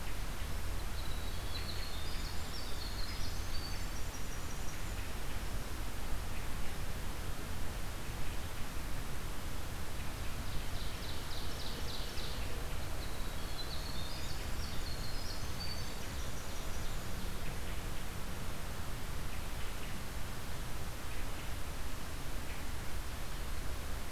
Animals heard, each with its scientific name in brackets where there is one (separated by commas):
Winter Wren (Troglodytes hiemalis), Hermit Thrush (Catharus guttatus), Ovenbird (Seiurus aurocapilla)